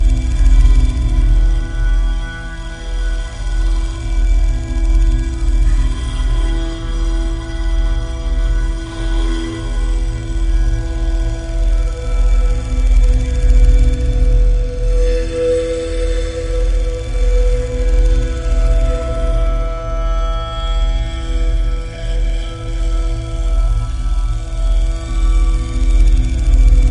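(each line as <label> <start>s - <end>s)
Repeated mechanical grinding and electronic sounds. 0.0s - 26.9s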